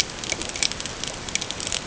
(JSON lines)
{"label": "ambient", "recorder": "HydroMoth"}